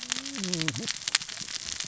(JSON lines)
{"label": "biophony, cascading saw", "recorder": "SoundTrap 600 or HydroMoth"}